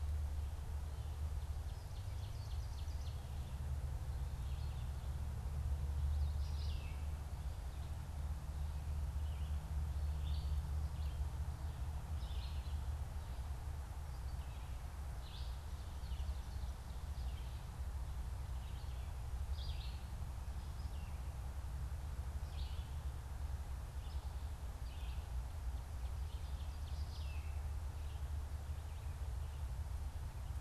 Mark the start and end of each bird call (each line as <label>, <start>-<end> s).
Ovenbird (Seiurus aurocapilla), 1.3-3.3 s
Red-eyed Vireo (Vireo olivaceus), 6.3-12.6 s
Red-eyed Vireo (Vireo olivaceus), 15.0-27.7 s
Ovenbird (Seiurus aurocapilla), 26.0-27.8 s